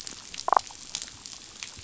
{"label": "biophony, damselfish", "recorder": "SoundTrap 500"}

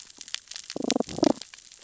{"label": "biophony, damselfish", "recorder": "SoundTrap 600 or HydroMoth"}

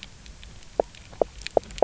{"label": "biophony, knock croak", "recorder": "SoundTrap 300"}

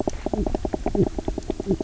{"label": "biophony, knock croak", "recorder": "SoundTrap 300"}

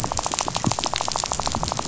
{"label": "biophony, rattle", "recorder": "SoundTrap 500"}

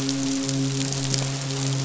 {"label": "biophony, midshipman", "recorder": "SoundTrap 500"}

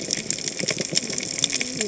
{"label": "biophony, cascading saw", "recorder": "HydroMoth"}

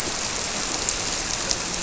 {"label": "biophony, grouper", "recorder": "SoundTrap 300"}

